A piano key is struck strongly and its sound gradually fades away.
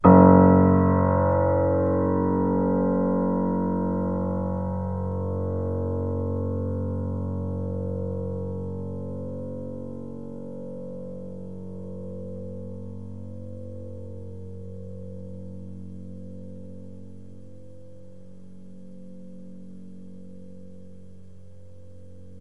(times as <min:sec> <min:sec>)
0:00.0 0:15.9